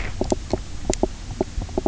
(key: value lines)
label: biophony, knock croak
recorder: SoundTrap 300